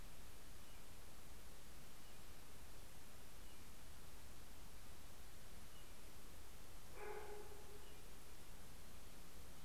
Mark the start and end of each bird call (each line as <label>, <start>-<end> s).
American Robin (Turdus migratorius), 0.0-8.0 s